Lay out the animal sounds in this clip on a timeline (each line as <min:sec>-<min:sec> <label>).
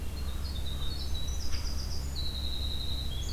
0:00.0-0:03.3 Winter Wren (Troglodytes hiemalis)